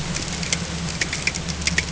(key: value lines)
label: ambient
recorder: HydroMoth